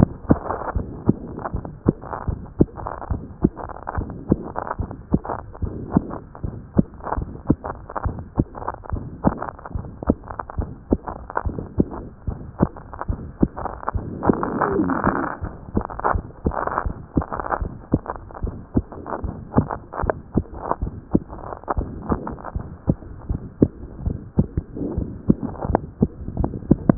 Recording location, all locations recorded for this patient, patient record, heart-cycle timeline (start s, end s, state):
pulmonary valve (PV)
aortic valve (AV)+aortic valve (AV)+pulmonary valve (PV)+pulmonary valve (PV)+tricuspid valve (TV)+mitral valve (MV)
#Age: Adolescent
#Sex: Female
#Height: 142.0 cm
#Weight: 26.5 kg
#Pregnancy status: False
#Murmur: Present
#Murmur locations: aortic valve (AV)+pulmonary valve (PV)+tricuspid valve (TV)
#Most audible location: tricuspid valve (TV)
#Systolic murmur timing: Holosystolic
#Systolic murmur shape: Decrescendo
#Systolic murmur grading: I/VI
#Systolic murmur pitch: Medium
#Systolic murmur quality: Harsh
#Diastolic murmur timing: nan
#Diastolic murmur shape: nan
#Diastolic murmur grading: nan
#Diastolic murmur pitch: nan
#Diastolic murmur quality: nan
#Outcome: Abnormal
#Campaign: 2014 screening campaign
0.00	0.74	unannotated
0.74	0.86	S1
0.86	1.06	systole
1.06	1.18	S2
1.18	1.54	diastole
1.54	1.64	S1
1.64	1.86	systole
1.86	1.96	S2
1.96	2.28	diastole
2.28	2.40	S1
2.40	2.58	systole
2.58	2.68	S2
2.68	3.10	diastole
3.10	3.22	S1
3.22	3.42	systole
3.42	3.52	S2
3.52	3.96	diastole
3.96	4.08	S1
4.08	4.30	systole
4.30	4.40	S2
4.40	4.78	diastole
4.78	4.90	S1
4.90	5.12	systole
5.12	5.22	S2
5.22	5.62	diastole
5.62	5.74	S1
5.74	5.94	systole
5.94	6.04	S2
6.04	6.44	diastole
6.44	6.56	S1
6.56	6.76	systole
6.76	6.86	S2
6.86	7.16	diastole
7.16	7.28	S1
7.28	7.48	systole
7.48	7.58	S2
7.58	8.04	diastole
8.04	8.18	S1
8.18	8.38	systole
8.38	8.46	S2
8.46	8.92	diastole
8.92	9.04	S1
9.04	9.24	systole
9.24	9.36	S2
9.36	9.74	diastole
9.74	9.86	S1
9.86	10.06	systole
10.06	10.18	S2
10.18	10.58	diastole
10.58	10.70	S1
10.70	10.90	systole
10.90	11.00	S2
11.00	11.46	diastole
11.46	11.58	S1
11.58	11.78	systole
11.78	11.88	S2
11.88	12.28	diastole
12.28	12.38	S1
12.38	12.60	systole
12.60	12.70	S2
12.70	13.08	diastole
13.08	13.20	S1
13.20	13.40	systole
13.40	13.50	S2
13.50	13.94	diastole
13.94	26.98	unannotated